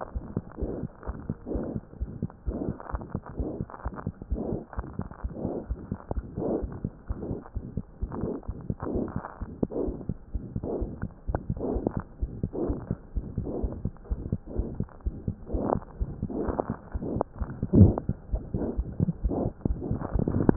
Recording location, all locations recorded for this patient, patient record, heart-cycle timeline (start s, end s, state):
aortic valve (AV)
aortic valve (AV)+pulmonary valve (PV)+tricuspid valve (TV)+mitral valve (MV)
#Age: Infant
#Sex: Female
#Height: 64.0 cm
#Weight: 6.0 kg
#Pregnancy status: False
#Murmur: Present
#Murmur locations: aortic valve (AV)+mitral valve (MV)+pulmonary valve (PV)+tricuspid valve (TV)
#Most audible location: tricuspid valve (TV)
#Systolic murmur timing: Holosystolic
#Systolic murmur shape: Plateau
#Systolic murmur grading: II/VI
#Systolic murmur pitch: Medium
#Systolic murmur quality: Blowing
#Diastolic murmur timing: nan
#Diastolic murmur shape: nan
#Diastolic murmur grading: nan
#Diastolic murmur pitch: nan
#Diastolic murmur quality: nan
#Outcome: Abnormal
#Campaign: 2015 screening campaign
0.00	1.82	unannotated
1.82	1.98	diastole
1.98	2.08	S1
2.08	2.20	systole
2.20	2.30	S2
2.30	2.47	diastole
2.47	2.55	S1
2.55	2.67	systole
2.67	2.74	S2
2.74	2.92	diastole
2.92	2.99	S1
2.99	3.13	systole
3.13	3.20	S2
3.20	3.38	diastole
3.38	3.45	S1
3.45	3.59	systole
3.59	3.65	S2
3.65	3.85	diastole
3.85	3.92	S1
3.92	4.07	systole
4.07	4.12	S2
4.12	4.30	diastole
4.30	4.39	S1
4.39	4.52	systole
4.52	4.57	S2
4.57	4.78	diastole
4.78	4.83	S1
4.83	4.98	systole
4.98	5.05	S2
5.05	5.24	diastole
5.24	5.32	S1
5.32	5.44	systole
5.44	5.51	S2
5.51	5.70	diastole
5.70	5.78	S1
5.78	5.92	systole
5.92	5.98	S2
5.98	6.16	diastole
6.16	6.24	S1
6.24	6.37	systole
6.37	6.43	S2
6.43	6.62	diastole
6.62	6.69	S1
6.69	6.83	systole
6.83	6.89	S2
6.89	7.09	diastole
7.09	7.13	S1
7.13	7.28	systole
7.28	7.36	S2
7.36	7.55	diastole
7.55	7.64	S1
7.64	7.76	systole
7.76	7.82	S2
7.82	8.02	diastole
8.02	8.10	S1
8.10	8.23	systole
8.23	8.29	S2
8.29	8.47	diastole
8.47	8.52	S1
8.52	8.68	systole
8.68	8.76	S2
8.76	20.56	unannotated